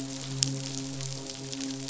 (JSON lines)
{"label": "biophony, midshipman", "recorder": "SoundTrap 500"}